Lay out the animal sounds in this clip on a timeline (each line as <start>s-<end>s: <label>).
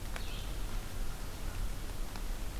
0.1s-2.6s: Red-eyed Vireo (Vireo olivaceus)